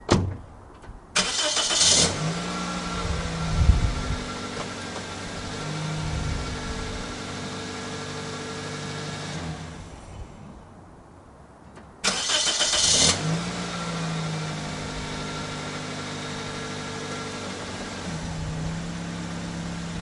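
0.0s A car door closes loudly. 1.2s
1.2s A car engine starts loudly. 9.8s
9.8s A car engine stops abruptly. 12.1s
12.1s Car engine starts loudly, with the motor running rapidly and its rhythm changing at the end. 20.0s

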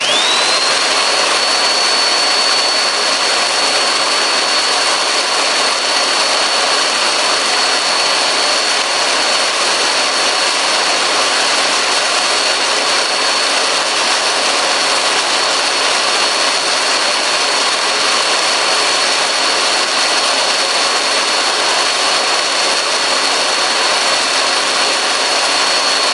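0.0s A drill is operating steadily. 26.1s

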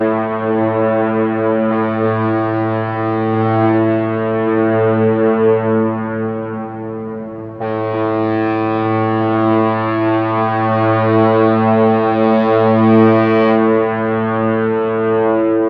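0.0s A ship's foghorn sounds twice in the distance. 15.7s

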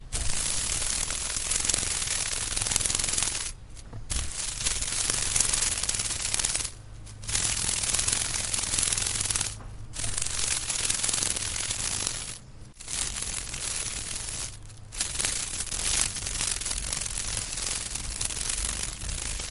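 0.0s Bugs being electrocuted. 6.7s
7.3s Bugs being electrocuted. 19.5s

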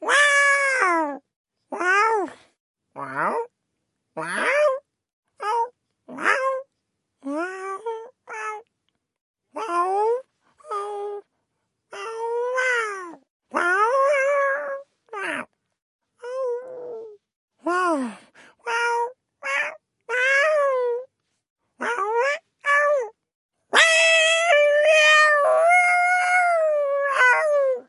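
0.0s A cat meows. 8.7s
9.5s A cat is meowing. 13.3s
13.5s A person meowing like a cat. 15.6s
16.2s A strange meow. 17.3s
17.6s A person meowing like a cat. 21.2s
21.8s A strange meow. 23.2s
23.7s A loud, tormented meow is made by a human. 27.9s

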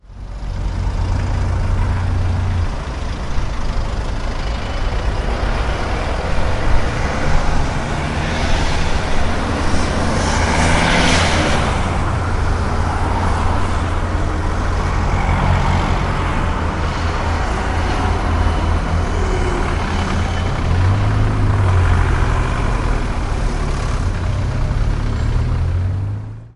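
0.0s Cars driving by on a road with varying intensity in the background. 26.6s

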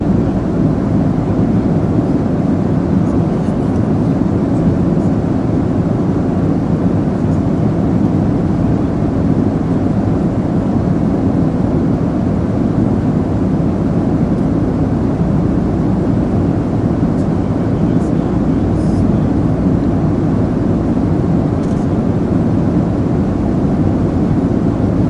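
0.0s The continuous noise of an airplane. 25.1s

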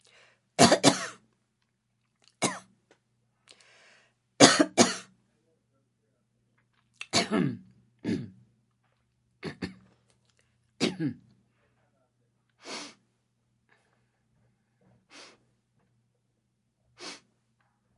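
0.0s Someone inhales and breathes. 0.6s
0.6s A recurring cough is heard in the room. 1.1s
2.4s A person coughs in a room. 2.6s
3.5s Someone inhales and breathes. 4.4s
4.4s A recurring cough is heard in the room. 5.0s
7.0s A person coughs with a sore throat. 7.6s
8.1s Someone has a sore throat. 8.3s
9.4s A recurring sore throat is mentioned. 9.8s
10.8s A person coughs in a room. 11.2s
12.7s Someone is sniffling. 13.0s
15.1s Someone is sniffling. 15.5s
17.0s Someone is sniffling. 17.3s

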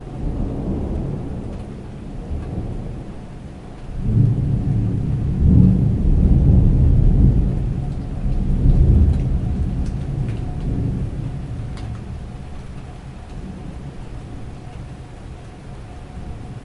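0.0s Raindrops falling in a windy outdoor environment. 11.4s
3.9s Heavy wind blowing. 11.4s
12.9s Raindrops falling in a windy outdoor environment. 16.6s

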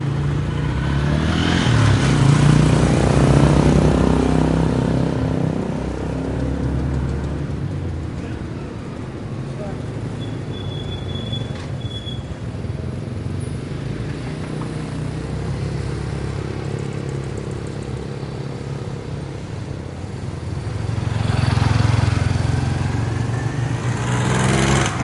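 0.3s A motorcycle is riding. 8.1s
20.8s A motorcycle is riding. 25.0s

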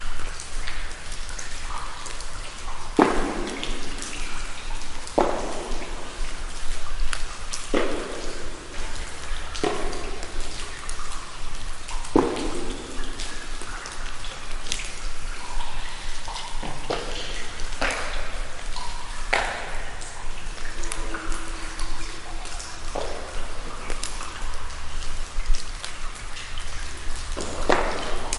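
0.0s Water falls from the ceiling of a cave or mine, and occasional pieces of stone fall into the water. 28.4s

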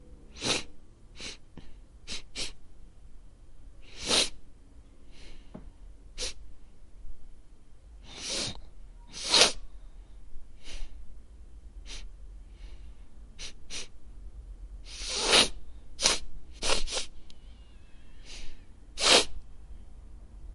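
0.3s Someone is sniffling. 2.8s
3.7s Someone is sniffling. 4.6s
6.1s Someone is sniffling. 6.4s
8.1s Someone is sniffling. 11.2s
11.8s Someone is sniffling. 12.2s
13.4s Someone is sniffling. 14.0s
14.8s Someone is sniffling. 17.4s
18.1s Someone is sniffling. 19.5s

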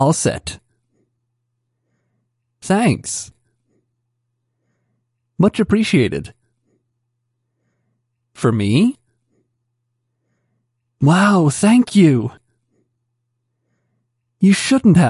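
0.0s Someone is speaking. 0.8s
2.5s Someone is speaking. 3.5s
8.1s Someone is speaking. 9.4s
14.1s Someone is speaking. 15.1s

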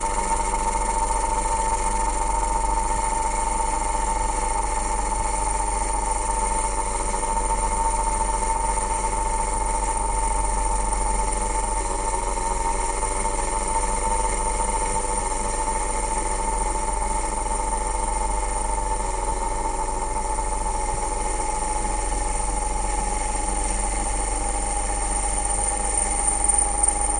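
0.0s A drill operates with a constant steady pattern and a slight high-pitched tone at the end. 27.2s

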